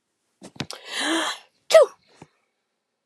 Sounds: Sneeze